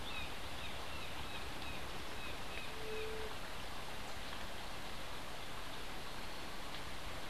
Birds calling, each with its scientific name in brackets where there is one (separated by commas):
Brown Jay (Psilorhinus morio), White-tipped Dove (Leptotila verreauxi)